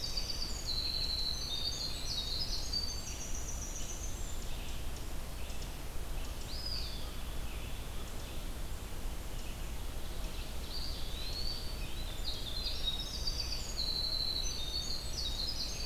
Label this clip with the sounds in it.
Winter Wren, Eastern Wood-Pewee, Ovenbird, Red-eyed Vireo